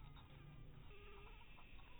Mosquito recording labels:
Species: Anopheles maculatus; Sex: female; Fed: unfed; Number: one; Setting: cup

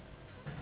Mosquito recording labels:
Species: Anopheles gambiae s.s.; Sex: female; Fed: unfed; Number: one; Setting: insect culture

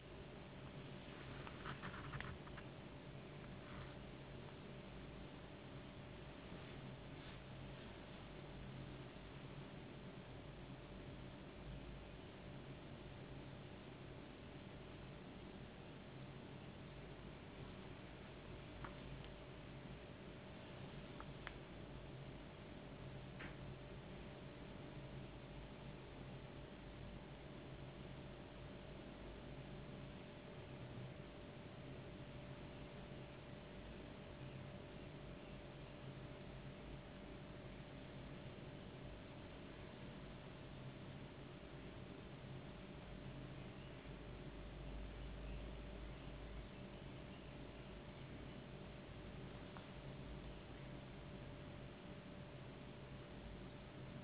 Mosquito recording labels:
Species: no mosquito; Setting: insect culture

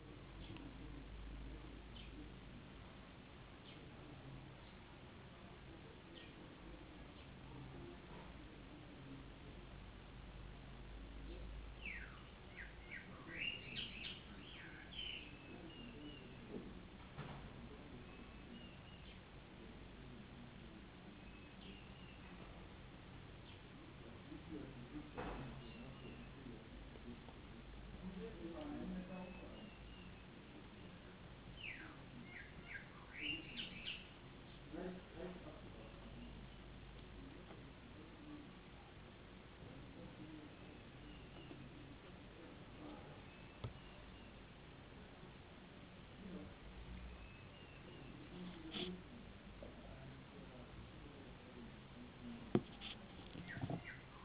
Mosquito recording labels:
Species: no mosquito; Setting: insect culture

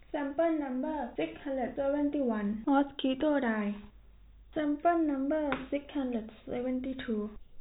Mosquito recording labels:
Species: no mosquito; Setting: cup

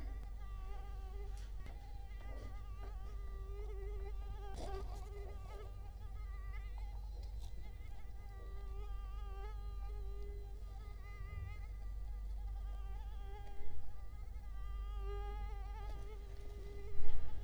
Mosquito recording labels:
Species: Culex quinquefasciatus; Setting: cup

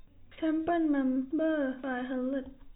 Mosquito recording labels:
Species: no mosquito; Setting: cup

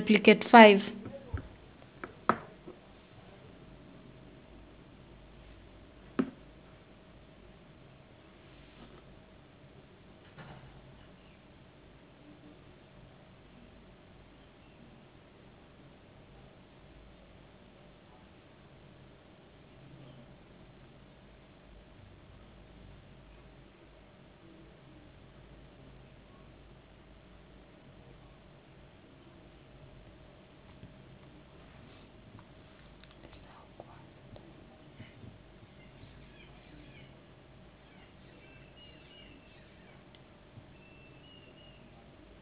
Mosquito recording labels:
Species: no mosquito; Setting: insect culture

